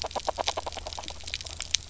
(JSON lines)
{"label": "biophony, grazing", "recorder": "SoundTrap 300"}